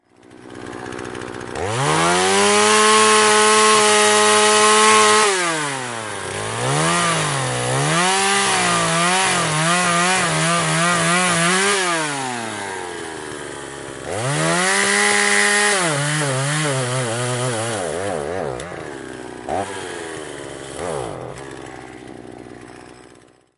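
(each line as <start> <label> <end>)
0.0 A chainsaw repeatedly cutting with occasional pauses. 23.6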